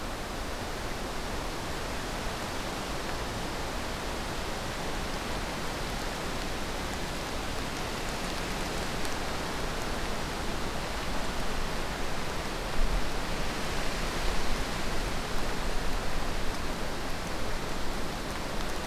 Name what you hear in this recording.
forest ambience